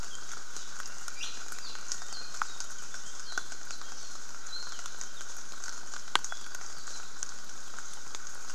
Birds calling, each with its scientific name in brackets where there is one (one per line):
Iiwi (Drepanis coccinea)
Apapane (Himatione sanguinea)